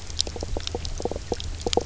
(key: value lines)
label: biophony, knock croak
recorder: SoundTrap 300